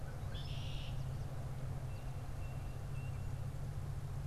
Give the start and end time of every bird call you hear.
0.2s-1.1s: Red-winged Blackbird (Agelaius phoeniceus)
1.7s-3.4s: Tufted Titmouse (Baeolophus bicolor)

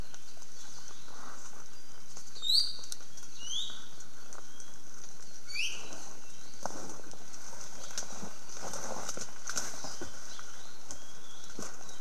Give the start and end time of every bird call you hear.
3.3s-3.9s: Iiwi (Drepanis coccinea)
5.4s-5.9s: Iiwi (Drepanis coccinea)

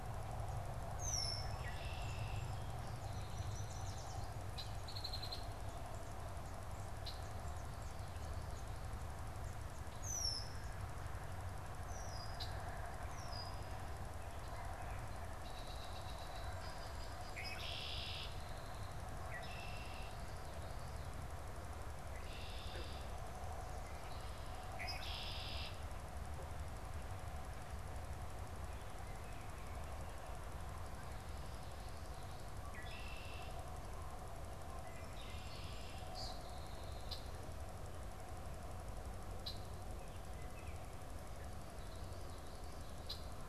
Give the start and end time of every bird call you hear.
0.0s-25.9s: Red-winged Blackbird (Agelaius phoeniceus)
1.9s-3.9s: Song Sparrow (Melospiza melodia)
2.7s-4.4s: Yellow Warbler (Setophaga petechia)
32.6s-43.5s: Red-winged Blackbird (Agelaius phoeniceus)

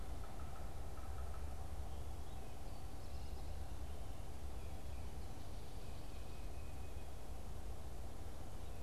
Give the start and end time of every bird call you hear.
0.0s-1.4s: Yellow-bellied Sapsucker (Sphyrapicus varius)

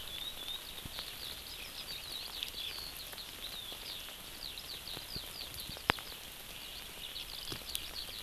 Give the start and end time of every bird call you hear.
0.0s-8.2s: Eurasian Skylark (Alauda arvensis)

